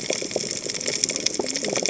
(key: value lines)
label: biophony, cascading saw
recorder: HydroMoth